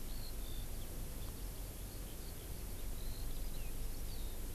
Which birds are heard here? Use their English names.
Eurasian Skylark